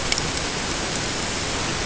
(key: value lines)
label: ambient
recorder: HydroMoth